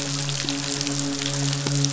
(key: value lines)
label: biophony, midshipman
recorder: SoundTrap 500